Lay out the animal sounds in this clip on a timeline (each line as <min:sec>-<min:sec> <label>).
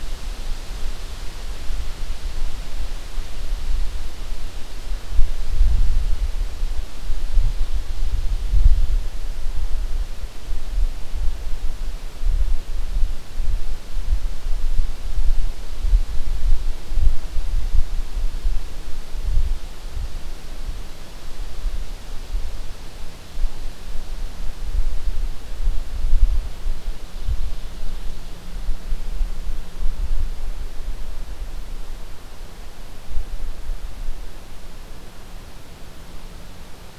0:27.3-0:29.1 Ovenbird (Seiurus aurocapilla)